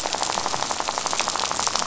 {"label": "biophony, rattle", "recorder": "SoundTrap 500"}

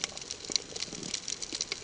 {"label": "ambient", "recorder": "HydroMoth"}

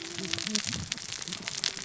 {"label": "biophony, cascading saw", "recorder": "SoundTrap 600 or HydroMoth"}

